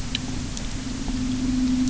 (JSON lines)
{"label": "anthrophony, boat engine", "recorder": "SoundTrap 300"}